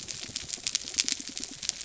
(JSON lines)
{"label": "biophony", "recorder": "SoundTrap 300"}